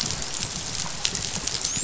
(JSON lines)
{"label": "biophony, dolphin", "recorder": "SoundTrap 500"}